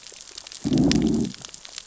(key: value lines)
label: biophony, growl
recorder: SoundTrap 600 or HydroMoth